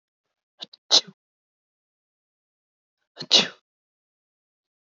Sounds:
Sneeze